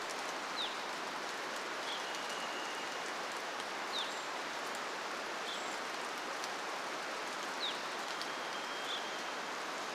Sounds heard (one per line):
Varied Thrush song
Evening Grosbeak call
rain
Brown Creeper call